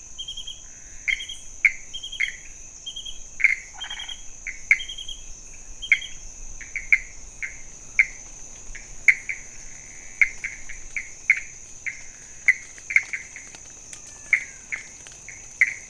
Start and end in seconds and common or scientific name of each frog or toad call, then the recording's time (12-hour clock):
0.0	15.8	Pithecopus azureus
3.7	4.2	Chaco tree frog
13.6	15.1	menwig frog
2:00am